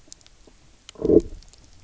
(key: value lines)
label: biophony, low growl
recorder: SoundTrap 300